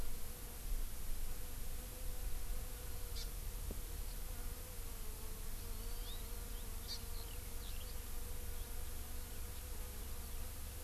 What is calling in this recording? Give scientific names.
Chlorodrepanis virens, Alauda arvensis